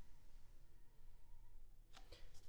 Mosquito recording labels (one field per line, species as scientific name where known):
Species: Culex pipiens complex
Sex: female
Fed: unfed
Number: one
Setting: cup